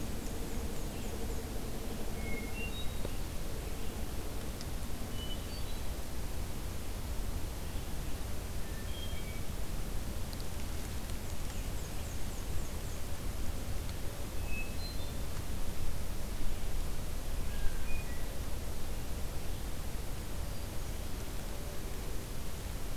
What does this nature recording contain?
Black-and-white Warbler, Red-eyed Vireo, Hermit Thrush